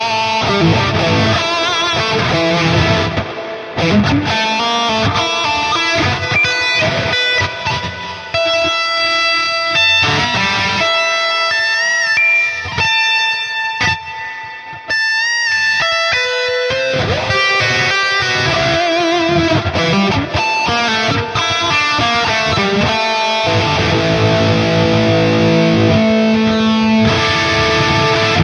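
0.0s A single electric guitar plays loudly with a distorted tone. 28.4s

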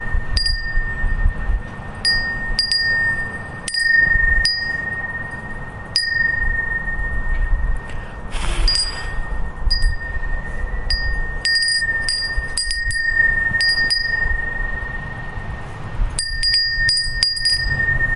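0.0s A chime rings in the wind. 2.0s
2.0s A chime rings repeatedly in the wind outside. 5.9s
5.9s A chime rings in the wind. 8.3s
8.3s A chime rings repeatedly in the wind. 11.5s
11.4s A chime rings repeatedly in quick succession in the wind. 18.2s

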